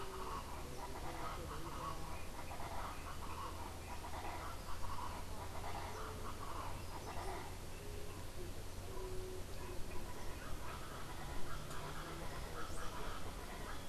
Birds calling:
Colombian Chachalaca (Ortalis columbiana)

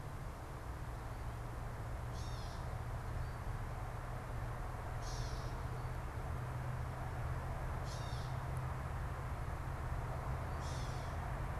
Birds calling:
Gray Catbird (Dumetella carolinensis)

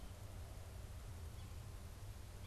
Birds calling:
Yellow-bellied Sapsucker (Sphyrapicus varius)

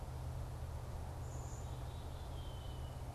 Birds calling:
Red-winged Blackbird (Agelaius phoeniceus)
Black-capped Chickadee (Poecile atricapillus)

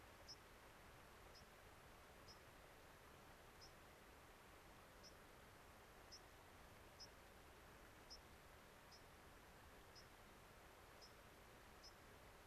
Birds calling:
White-crowned Sparrow (Zonotrichia leucophrys)

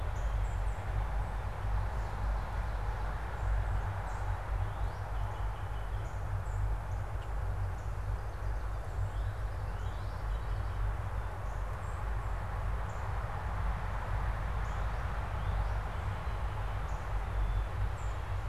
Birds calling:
Northern Cardinal (Cardinalis cardinalis)
unidentified bird
Song Sparrow (Melospiza melodia)

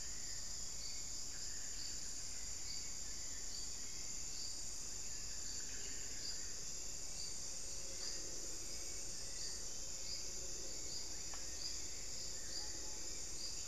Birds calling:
Solitary Black Cacique (Cacicus solitarius)
Screaming Piha (Lipaugus vociferans)

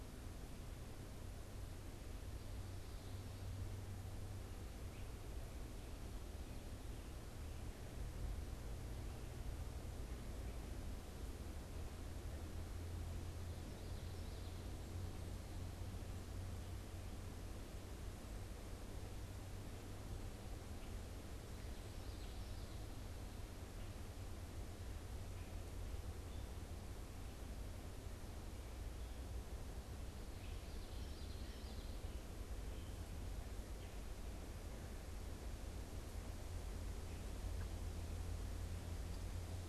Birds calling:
Common Yellowthroat (Geothlypis trichas)

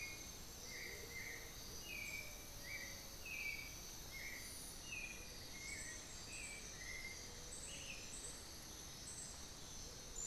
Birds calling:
Black-billed Thrush (Turdus ignobilis)
Cinnamon-throated Woodcreeper (Dendrexetastes rufigula)
Amazonian Motmot (Momotus momota)

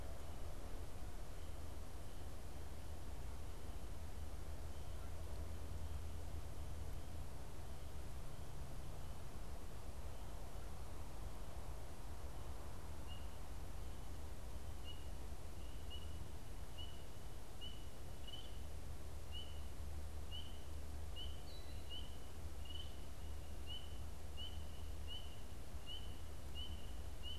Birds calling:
Killdeer (Charadrius vociferus)

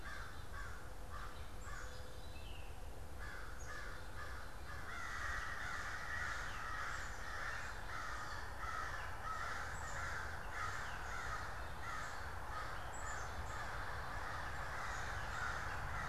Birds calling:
American Crow (Corvus brachyrhynchos)
Black-capped Chickadee (Poecile atricapillus)
Veery (Catharus fuscescens)
Gray Catbird (Dumetella carolinensis)

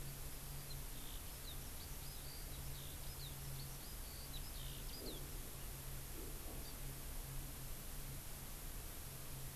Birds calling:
Eurasian Skylark (Alauda arvensis)
Hawaii Amakihi (Chlorodrepanis virens)

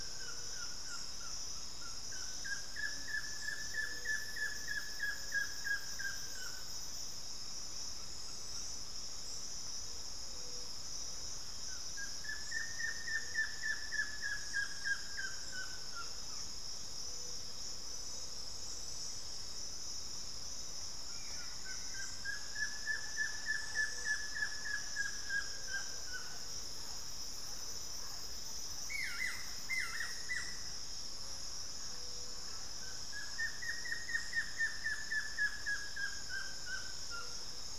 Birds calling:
Buff-throated Woodcreeper (Xiphorhynchus guttatus)

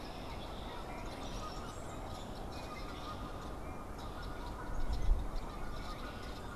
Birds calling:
Red-winged Blackbird (Agelaius phoeniceus)
Canada Goose (Branta canadensis)

